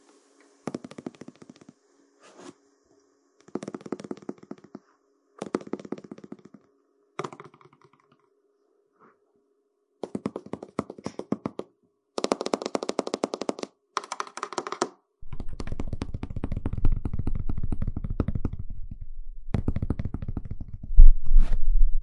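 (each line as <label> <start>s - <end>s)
Tapping that gradually fades away. 0.6s - 1.8s
A gentle scratching sound. 2.4s - 2.5s
Tapping sounds. 3.5s - 7.6s
Repeated tapping sounds. 10.0s - 11.7s
Intense tapping sounds. 12.2s - 14.9s
Muffled tapping sounds. 15.3s - 20.9s
Scratching sounds. 21.0s - 22.0s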